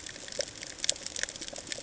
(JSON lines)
{"label": "ambient", "recorder": "HydroMoth"}